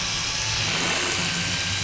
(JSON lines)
{"label": "anthrophony, boat engine", "recorder": "SoundTrap 500"}